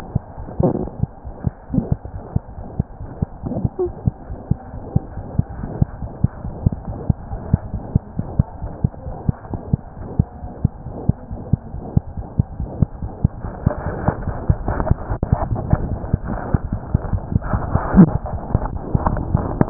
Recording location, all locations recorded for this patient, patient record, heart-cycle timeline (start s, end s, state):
mitral valve (MV)
aortic valve (AV)+mitral valve (MV)
#Age: Infant
#Sex: Female
#Height: 58.0 cm
#Weight: 4.48 kg
#Pregnancy status: False
#Murmur: Present
#Murmur locations: aortic valve (AV)+mitral valve (MV)
#Most audible location: mitral valve (MV)
#Systolic murmur timing: Holosystolic
#Systolic murmur shape: Plateau
#Systolic murmur grading: I/VI
#Systolic murmur pitch: Medium
#Systolic murmur quality: Blowing
#Diastolic murmur timing: nan
#Diastolic murmur shape: nan
#Diastolic murmur grading: nan
#Diastolic murmur pitch: nan
#Diastolic murmur quality: nan
#Outcome: Abnormal
#Campaign: 2015 screening campaign
0.00	4.28	unannotated
4.28	4.38	S1
4.38	4.48	systole
4.48	4.57	S2
4.57	4.72	diastole
4.72	4.82	S1
4.82	4.93	systole
4.93	5.01	S2
5.01	5.15	diastole
5.15	5.24	S1
5.24	5.36	systole
5.36	5.45	S2
5.45	5.60	diastole
5.60	5.69	S1
5.69	5.79	systole
5.79	5.88	S2
5.88	6.00	diastole
6.00	6.10	S1
6.10	6.20	systole
6.20	6.30	S2
6.30	6.42	diastole
6.42	6.52	S1
6.52	6.62	systole
6.62	6.71	S2
6.71	6.86	diastole
6.86	6.96	S1
6.96	7.05	systole
7.05	7.16	S2
7.16	7.27	diastole
7.27	7.39	S1
7.39	7.49	systole
7.49	7.59	S2
7.59	7.70	diastole
7.70	7.82	S1
7.82	7.92	systole
7.92	8.01	S2
8.01	8.14	diastole
8.14	8.25	S1
8.25	8.35	systole
8.35	8.45	S2
8.45	8.61	diastole
8.61	8.71	S1
8.71	8.81	systole
8.81	8.90	S2
8.90	9.03	diastole
9.03	9.15	S1
9.15	9.25	systole
9.25	9.34	S2
9.34	9.49	diastole
9.49	9.59	S1
9.59	9.68	systole
9.68	9.79	S2
9.79	9.96	diastole
9.96	10.07	S1
10.07	10.16	systole
10.16	10.26	S2
10.26	10.40	diastole
10.40	10.50	S1
10.50	10.61	systole
10.61	10.70	S2
10.70	10.83	diastole
10.83	10.95	S1
10.95	19.70	unannotated